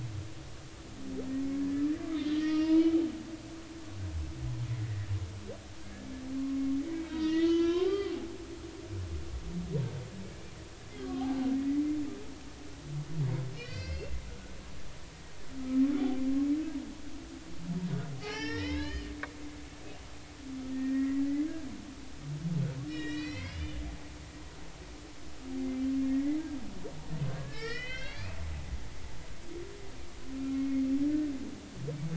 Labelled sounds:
2.3	3.0	humpback whale, 1.2 to 5.8 kHz
5.8	6.1	humpback whale, 1.5 to 1.8 kHz
7.1	8.2	humpback whale, 0.93 to 4.9 kHz
11.0	11.4	humpback whale, 0.80 to 1.2 kHz
13.5	14.2	humpback whale, 1.4 to 5.8 kHz
18.2	19.6	humpback whale, 0.80 to 5.7 kHz
20.7	21.2	humpback whale, 1.8 to 2.0 kHz
22.9	23.8	humpback whale, 1.8 to 6.1 kHz
26.1	28.4	humpback whale, 1.3 to 5.6 kHz
30.3	30.6	humpback whale, 1.3 to 1.4 kHz

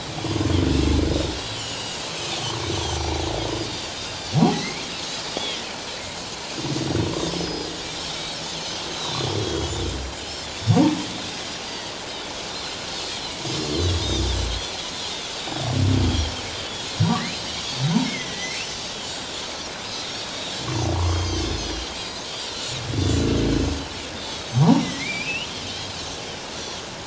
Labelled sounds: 1.1	2.0	Pacific white-sided dolphin, 2.6 to 7.8 kHz
2.7	3.1	Pacific white-sided dolphin, 5.8 to 6.5 kHz
4.3	4.8	humpback whale, 0.78 to 2.5 kHz
4.5	4.8	Pacific white-sided dolphin, 6.2 to 6.6 kHz
5.4	5.7	Pacific white-sided dolphin, 1.9 to 2.3 kHz
7.3	7.7	Pacific white-sided dolphin, 4.9 to 5.4 kHz
8.1	8.4	Pacific white-sided dolphin, 3.5 to 3.9 kHz
8.9	10.7	Pacific white-sided dolphin, 2.9 to 4.1 kHz
11.6	14.7	Pacific white-sided dolphin, 3.1 to 6.8 kHz
15.4	16.4	Pacific white-sided dolphin, 3.1 to 5.8 kHz
17.0	18.5	Pacific white-sided dolphin, 3.7 to 6.2 kHz
18.0	18.9	humpback whale, 1.9 to 3.1 kHz
20.2	20.5	Pacific white-sided dolphin, 3.7 to 3.9 kHz
20.9	21.2	humpback whale, 0.91 to 1.2 kHz
21.0	22.3	Pacific white-sided dolphin, 2.8 to 7.8 kHz
24.2	24.9	Pacific white-sided dolphin, 3.2 to 5.7 kHz
24.8	25.6	humpback whale, 1.9 to 3.3 kHz

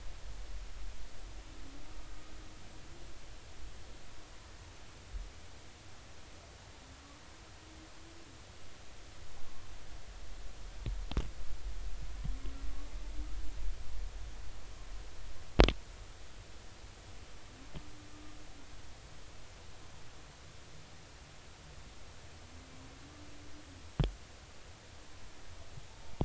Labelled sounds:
25.9	26.1	humpback whale, 0.83 to 0.96 kHz

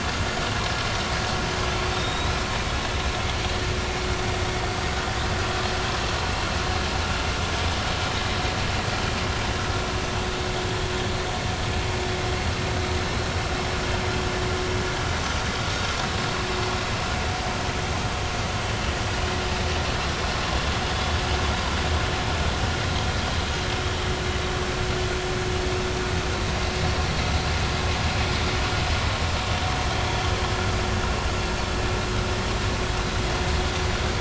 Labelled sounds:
1.9	2.3	Pacific white-sided dolphin, 3.5 to 3.9 kHz

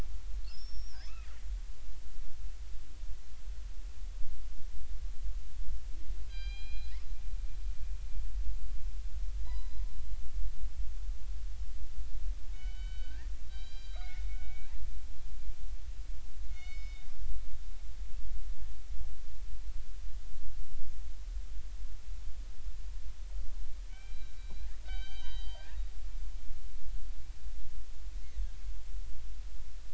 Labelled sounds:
0.5	2.0	killer whale, northern resident, G clan, 2.0 to 5.7 kHz
6.3	7.0	killer whale, northern resident, G clan, 1.5 to 4.9 kHz
9.4	9.8	killer whale, northern resident, G clan, 0.90 to 4.1 kHz
12.5	15.2	killer whale, northern resident, G clan, 1.2 to 7.2 kHz
16.5	17.1	killer whale, northern resident, G clan, 1.4 to 7.5 kHz
23.9	25.7	killer whale, northern resident, G clan, 1.4 to 6.3 kHz

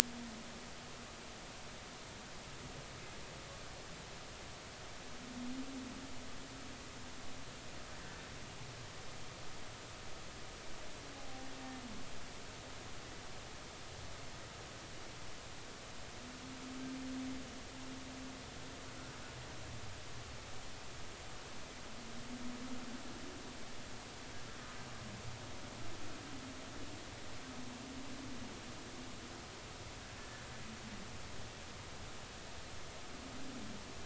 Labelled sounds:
11.2	11.5	humpback whale, 0.80 to 0.86 kHz
30.2	30.5	humpback whale, 1.7 to 1.9 kHz

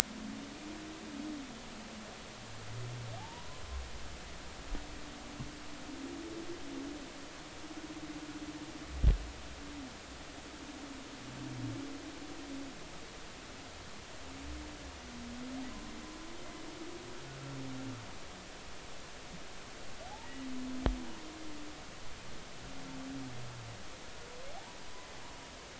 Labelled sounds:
3.2	3.6	humpback whale, 0.80 to 1.1 kHz
20.2	20.5	humpback whale, 1.9 to 2.0 kHz

